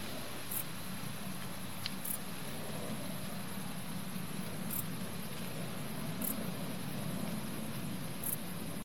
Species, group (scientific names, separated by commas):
Pholidoptera griseoaptera, Orthoptera